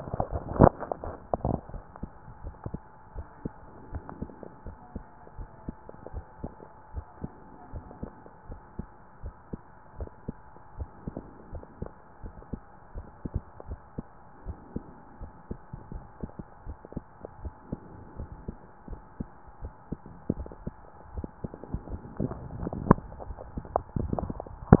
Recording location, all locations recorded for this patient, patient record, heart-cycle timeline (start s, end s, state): tricuspid valve (TV)
aortic valve (AV)+tricuspid valve (TV)+mitral valve (MV)
#Age: nan
#Sex: Female
#Height: nan
#Weight: nan
#Pregnancy status: True
#Murmur: Absent
#Murmur locations: nan
#Most audible location: nan
#Systolic murmur timing: nan
#Systolic murmur shape: nan
#Systolic murmur grading: nan
#Systolic murmur pitch: nan
#Systolic murmur quality: nan
#Diastolic murmur timing: nan
#Diastolic murmur shape: nan
#Diastolic murmur grading: nan
#Diastolic murmur pitch: nan
#Diastolic murmur quality: nan
#Outcome: Normal
#Campaign: 2015 screening campaign
0.00	2.42	unannotated
2.42	2.56	S1
2.56	2.72	systole
2.72	2.82	S2
2.82	3.13	diastole
3.13	3.26	S1
3.26	3.44	systole
3.44	3.54	S2
3.54	3.90	diastole
3.90	4.04	S1
4.04	4.20	systole
4.20	4.30	S2
4.30	4.64	diastole
4.64	4.76	S1
4.76	4.94	systole
4.94	5.04	S2
5.04	5.38	diastole
5.38	5.48	S1
5.48	5.66	systole
5.66	5.76	S2
5.76	6.12	diastole
6.12	6.24	S1
6.24	6.42	systole
6.42	6.52	S2
6.52	6.92	diastole
6.92	7.06	S1
7.06	7.22	systole
7.22	7.32	S2
7.32	7.72	diastole
7.72	7.84	S1
7.84	8.02	systole
8.02	8.12	S2
8.12	8.50	diastole
8.50	8.60	S1
8.60	8.78	systole
8.78	8.88	S2
8.88	9.24	diastole
9.24	9.34	S1
9.34	9.52	systole
9.52	9.58	S2
9.58	9.96	diastole
9.96	10.10	S1
10.10	10.26	systole
10.26	10.38	S2
10.38	10.76	diastole
10.76	10.90	S1
10.90	11.06	systole
11.06	11.16	S2
11.16	11.52	diastole
11.52	11.64	S1
11.64	11.80	systole
11.80	11.90	S2
11.90	12.24	diastole
12.24	12.34	S1
12.34	12.52	systole
12.52	12.62	S2
12.62	12.96	diastole
12.96	13.08	S1
13.08	13.24	systole
13.24	13.40	S2
13.40	13.70	diastole
13.70	13.80	S1
13.80	13.94	systole
13.94	14.06	S2
14.06	14.44	diastole
14.44	14.58	S1
14.58	14.74	systole
14.74	14.84	S2
14.84	15.20	diastole
15.20	15.32	S1
15.32	15.50	systole
15.50	15.60	S2
15.60	15.90	diastole
15.90	16.04	S1
16.04	16.22	systole
16.22	16.32	S2
16.32	16.68	diastole
16.68	16.78	S1
16.78	16.96	systole
16.96	17.06	S2
17.06	17.42	diastole
17.42	17.54	S1
17.54	17.68	systole
17.68	17.80	S2
17.80	18.18	diastole
18.18	18.30	S1
18.30	18.46	systole
18.46	18.56	S2
18.56	18.90	diastole
18.90	19.02	S1
19.02	19.16	systole
19.16	19.28	S2
19.28	19.62	diastole
19.62	19.72	S1
19.72	19.88	systole
19.88	19.98	S2
19.98	20.28	diastole
20.28	24.80	unannotated